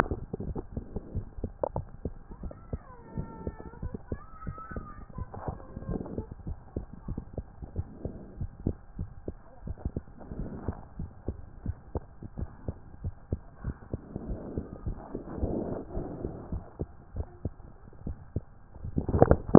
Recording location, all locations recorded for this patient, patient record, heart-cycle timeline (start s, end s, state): mitral valve (MV)
aortic valve (AV)+pulmonary valve (PV)+tricuspid valve (TV)+mitral valve (MV)
#Age: Child
#Sex: Male
#Height: 110.0 cm
#Weight: 20.5 kg
#Pregnancy status: False
#Murmur: Absent
#Murmur locations: nan
#Most audible location: nan
#Systolic murmur timing: nan
#Systolic murmur shape: nan
#Systolic murmur grading: nan
#Systolic murmur pitch: nan
#Systolic murmur quality: nan
#Diastolic murmur timing: nan
#Diastolic murmur shape: nan
#Diastolic murmur grading: nan
#Diastolic murmur pitch: nan
#Diastolic murmur quality: nan
#Outcome: Normal
#Campaign: 2015 screening campaign
0.00	10.76	unannotated
10.76	10.98	diastole
10.98	11.10	S1
11.10	11.28	systole
11.28	11.40	S2
11.40	11.64	diastole
11.64	11.76	S1
11.76	11.92	systole
11.92	12.06	S2
12.06	12.36	diastole
12.36	12.50	S1
12.50	12.64	systole
12.64	12.76	S2
12.76	13.02	diastole
13.02	13.14	S1
13.14	13.28	systole
13.28	13.40	S2
13.40	13.64	diastole
13.64	13.76	S1
13.76	13.92	systole
13.92	14.02	S2
14.02	14.26	diastole
14.26	14.40	S1
14.40	14.56	systole
14.56	14.66	S2
14.66	14.84	diastole
14.84	14.98	S1
14.98	15.14	systole
15.14	15.22	S2
15.22	15.42	diastole
15.42	15.52	S1
15.52	15.69	systole
15.69	15.78	S2
15.78	15.94	diastole
15.94	16.06	S1
16.06	16.21	systole
16.21	16.35	S2
16.35	16.52	diastole
16.52	16.65	S1
16.65	16.79	systole
16.79	16.91	S2
16.91	17.14	diastole
17.14	17.27	S1
17.27	17.43	systole
17.43	17.52	S2
17.52	17.84	diastole
17.84	19.58	unannotated